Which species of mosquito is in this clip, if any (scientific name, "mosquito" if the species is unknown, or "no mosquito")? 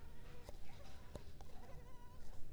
Culex pipiens complex